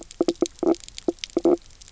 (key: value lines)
label: biophony, knock croak
recorder: SoundTrap 300